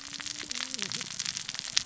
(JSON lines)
{"label": "biophony, cascading saw", "recorder": "SoundTrap 600 or HydroMoth"}